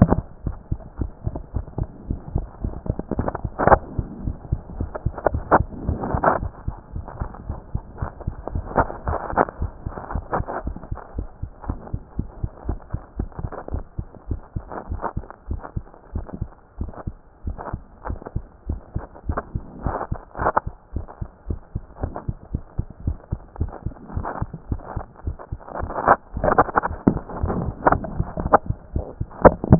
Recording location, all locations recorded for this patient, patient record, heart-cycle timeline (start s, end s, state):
mitral valve (MV)
pulmonary valve (PV)+tricuspid valve (TV)+mitral valve (MV)
#Age: Child
#Sex: Male
#Height: 145.0 cm
#Weight: 28.3 kg
#Pregnancy status: False
#Murmur: Present
#Murmur locations: mitral valve (MV)+pulmonary valve (PV)+tricuspid valve (TV)
#Most audible location: tricuspid valve (TV)
#Systolic murmur timing: Holosystolic
#Systolic murmur shape: Plateau
#Systolic murmur grading: I/VI
#Systolic murmur pitch: Low
#Systolic murmur quality: Harsh
#Diastolic murmur timing: nan
#Diastolic murmur shape: nan
#Diastolic murmur grading: nan
#Diastolic murmur pitch: nan
#Diastolic murmur quality: nan
#Outcome: Abnormal
#Campaign: 2014 screening campaign
0.00	0.36	unannotated
0.36	0.44	diastole
0.44	0.56	S1
0.56	0.70	systole
0.70	0.80	S2
0.80	0.98	diastole
0.98	1.10	S1
1.10	1.24	systole
1.24	1.34	S2
1.34	1.54	diastole
1.54	1.66	S1
1.66	1.78	systole
1.78	1.88	S2
1.88	2.12	diastole
2.12	2.20	S1
2.20	2.34	systole
2.34	2.46	S2
2.46	2.64	diastole
2.64	2.74	S1
2.74	2.88	systole
2.88	2.98	S2
2.98	3.16	diastole
3.16	3.30	S1
3.30	3.42	systole
3.42	3.50	S2
3.50	3.69	diastole
3.69	3.83	S1
3.83	3.96	systole
3.96	4.06	S2
4.06	4.24	diastole
4.24	4.36	S1
4.36	4.50	systole
4.50	4.60	S2
4.60	4.78	diastole
4.78	4.90	S1
4.90	5.04	systole
5.04	5.14	S2
5.14	5.33	diastole
5.33	29.79	unannotated